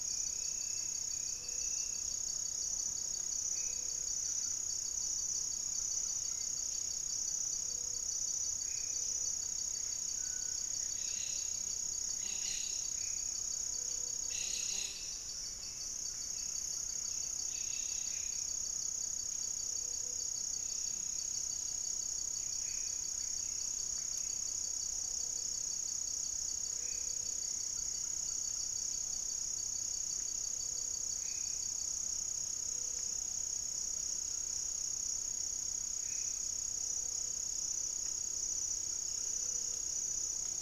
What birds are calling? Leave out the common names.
Formicarius analis, Leptotila rufaxilla, unidentified bird, Crypturellus cinereus, Turdus hauxwelli, Cantorchilus leucotis